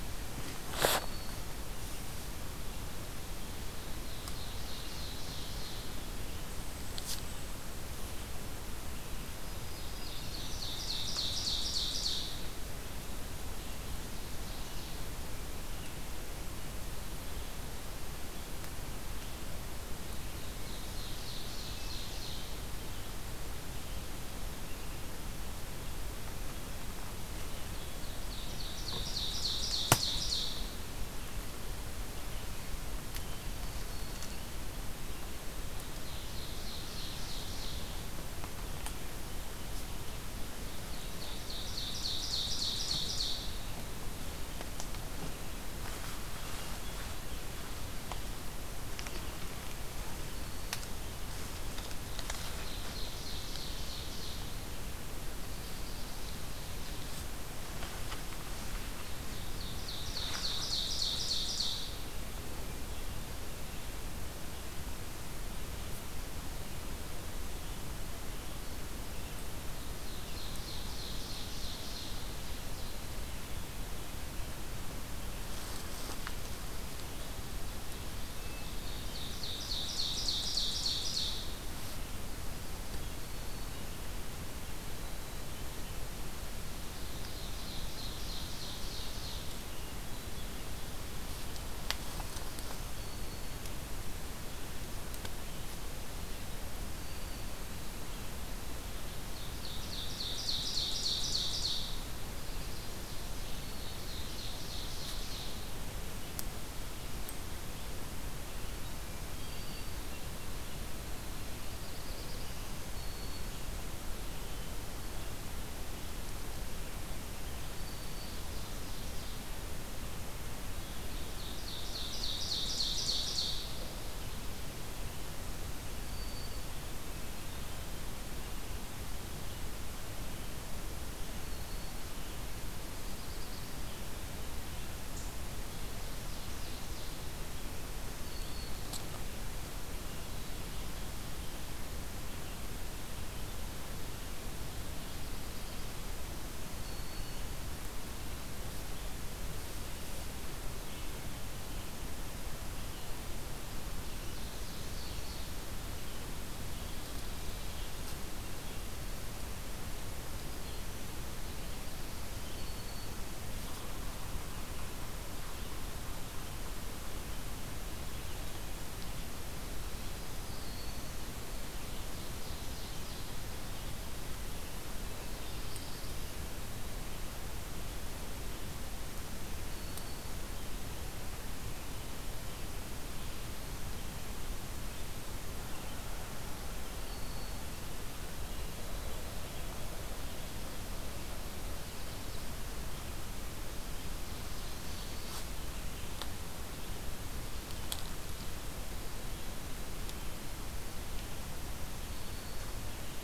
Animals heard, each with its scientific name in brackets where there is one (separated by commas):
Yellow-rumped Warbler (Setophaga coronata), Eastern Wood-Pewee (Contopus virens), Black-throated Blue Warbler (Setophaga caerulescens), Hermit Thrush (Catharus guttatus), Black-capped Chickadee (Poecile atricapillus), Red-eyed Vireo (Vireo olivaceus), Black-throated Green Warbler (Setophaga virens), Ovenbird (Seiurus aurocapilla)